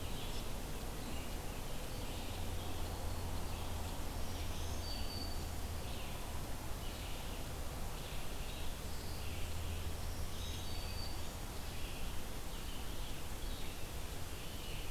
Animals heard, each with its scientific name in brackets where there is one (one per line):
Red-eyed Vireo (Vireo olivaceus)
Black-throated Green Warbler (Setophaga virens)